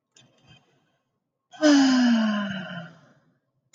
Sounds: Sigh